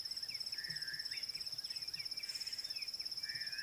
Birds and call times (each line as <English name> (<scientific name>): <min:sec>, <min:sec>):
Klaas's Cuckoo (Chrysococcyx klaas): 0:02.3